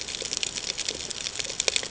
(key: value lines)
label: ambient
recorder: HydroMoth